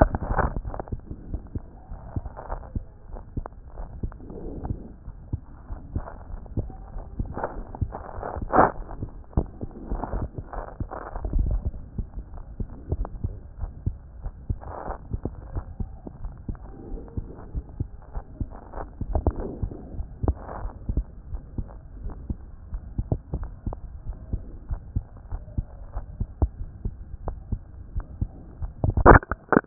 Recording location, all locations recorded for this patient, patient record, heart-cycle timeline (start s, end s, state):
aortic valve (AV)
aortic valve (AV)+pulmonary valve (PV)+tricuspid valve (TV)+mitral valve (MV)
#Age: Child
#Sex: Male
#Height: 127.0 cm
#Weight: 25.5 kg
#Pregnancy status: False
#Murmur: Absent
#Murmur locations: nan
#Most audible location: nan
#Systolic murmur timing: nan
#Systolic murmur shape: nan
#Systolic murmur grading: nan
#Systolic murmur pitch: nan
#Systolic murmur quality: nan
#Diastolic murmur timing: nan
#Diastolic murmur shape: nan
#Diastolic murmur grading: nan
#Diastolic murmur pitch: nan
#Diastolic murmur quality: nan
#Outcome: Abnormal
#Campaign: 2014 screening campaign
0.00	1.78	unannotated
1.78	1.90	diastole
1.90	2.00	S1
2.00	2.14	systole
2.14	2.22	S2
2.22	2.50	diastole
2.50	2.60	S1
2.60	2.74	systole
2.74	2.84	S2
2.84	3.12	diastole
3.12	3.22	S1
3.22	3.36	systole
3.36	3.46	S2
3.46	3.78	diastole
3.78	3.88	S1
3.88	4.02	systole
4.02	4.12	S2
4.12	4.44	diastole
4.44	4.54	S1
4.54	4.68	systole
4.68	4.78	S2
4.78	5.08	diastole
5.08	5.20	S1
5.20	5.32	systole
5.32	5.40	S2
5.40	5.70	diastole
5.70	5.80	S1
5.80	5.94	systole
5.94	6.04	S2
6.04	6.30	diastole
6.30	6.40	S1
6.40	6.56	systole
6.56	6.68	S2
6.68	6.94	diastole
6.94	7.04	S1
7.04	7.18	systole
7.18	7.30	S2
7.30	7.56	diastole
7.56	7.66	S1
7.66	7.80	systole
7.80	7.92	S2
7.92	8.27	diastole
8.27	29.66	unannotated